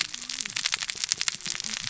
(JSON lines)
{"label": "biophony, cascading saw", "recorder": "SoundTrap 600 or HydroMoth"}